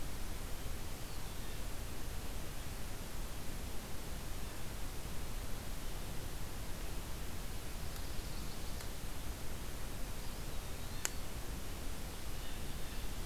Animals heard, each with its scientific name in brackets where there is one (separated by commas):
Eastern Wood-Pewee (Contopus virens), Blue Jay (Cyanocitta cristata), Chestnut-sided Warbler (Setophaga pensylvanica)